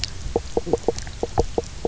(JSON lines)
{"label": "biophony, knock croak", "recorder": "SoundTrap 300"}